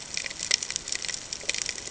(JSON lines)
{"label": "ambient", "recorder": "HydroMoth"}